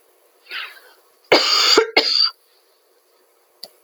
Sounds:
Cough